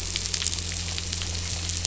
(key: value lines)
label: anthrophony, boat engine
recorder: SoundTrap 500